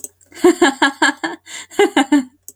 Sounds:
Laughter